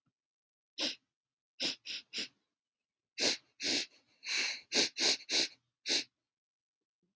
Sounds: Sniff